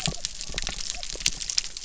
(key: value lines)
label: biophony
recorder: SoundTrap 300